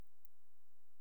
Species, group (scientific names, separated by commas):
Antaxius kraussii, Orthoptera